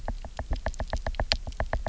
{"label": "biophony, knock", "recorder": "SoundTrap 300"}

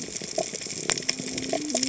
{"label": "biophony, cascading saw", "recorder": "HydroMoth"}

